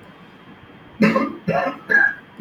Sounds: Throat clearing